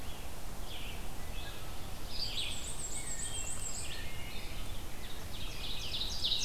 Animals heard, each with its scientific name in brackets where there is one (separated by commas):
Black-and-white Warbler (Mniotilta varia), Red-eyed Vireo (Vireo olivaceus), Wood Thrush (Hylocichla mustelina), Ovenbird (Seiurus aurocapilla)